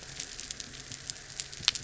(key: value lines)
label: anthrophony, boat engine
recorder: SoundTrap 300